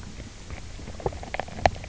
{"label": "biophony, knock croak", "recorder": "SoundTrap 300"}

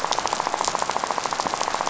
{"label": "biophony, rattle", "recorder": "SoundTrap 500"}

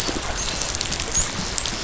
{"label": "biophony, dolphin", "recorder": "SoundTrap 500"}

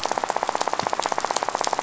{"label": "biophony, rattle", "recorder": "SoundTrap 500"}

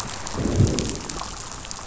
{"label": "biophony, growl", "recorder": "SoundTrap 500"}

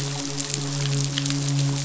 {"label": "biophony, midshipman", "recorder": "SoundTrap 500"}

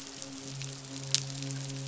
{"label": "biophony, midshipman", "recorder": "SoundTrap 500"}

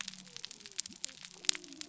{"label": "biophony", "recorder": "SoundTrap 300"}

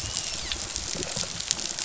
{"label": "biophony, rattle response", "recorder": "SoundTrap 500"}
{"label": "biophony, dolphin", "recorder": "SoundTrap 500"}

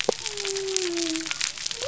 {"label": "biophony", "recorder": "SoundTrap 300"}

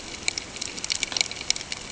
{"label": "ambient", "recorder": "HydroMoth"}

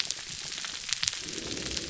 {"label": "biophony", "recorder": "SoundTrap 300"}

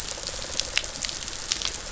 {"label": "biophony, pulse", "recorder": "SoundTrap 500"}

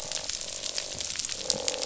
{"label": "biophony, croak", "recorder": "SoundTrap 500"}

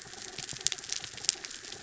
{"label": "anthrophony, mechanical", "recorder": "SoundTrap 300"}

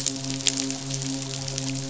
{"label": "biophony, midshipman", "recorder": "SoundTrap 500"}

